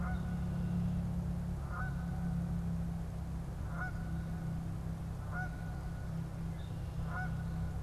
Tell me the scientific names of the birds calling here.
Agelaius phoeniceus, Branta canadensis